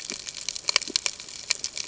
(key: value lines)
label: ambient
recorder: HydroMoth